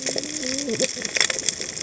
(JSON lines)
{"label": "biophony, cascading saw", "recorder": "HydroMoth"}